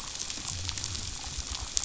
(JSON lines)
{"label": "biophony", "recorder": "SoundTrap 500"}